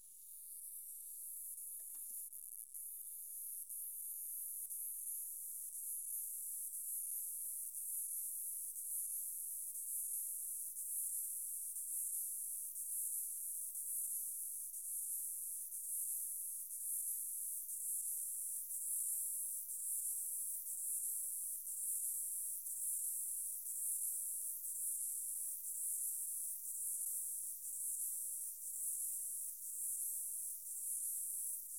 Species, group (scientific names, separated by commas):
Stenobothrus lineatus, Orthoptera